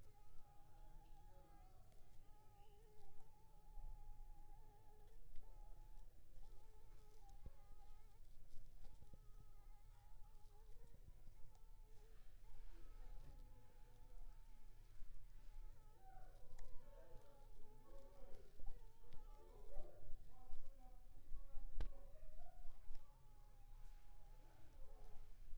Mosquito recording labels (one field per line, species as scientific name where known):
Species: Anopheles funestus s.s.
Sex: female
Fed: unfed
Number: one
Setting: cup